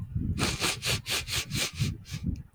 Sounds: Sniff